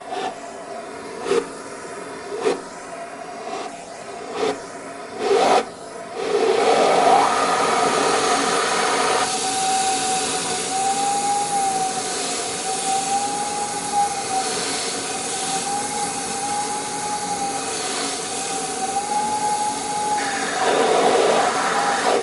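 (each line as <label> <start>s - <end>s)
A vacuum cleaner activates briefly in a short burst. 0.0s - 0.4s
A vacuum cleaner activates briefly in a short burst. 1.1s - 1.5s
A vacuum cleaner activates briefly in a short burst. 2.3s - 5.7s
A vacuum cleaner operating with a rising tone burst. 6.1s - 7.4s
A vacuum cleaner runs continuously, producing a constant suction sound. 7.4s - 20.4s
A vacuum cleaner operates with a rising suction sound over a long period. 20.4s - 21.7s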